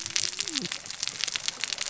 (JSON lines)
{"label": "biophony, cascading saw", "recorder": "SoundTrap 600 or HydroMoth"}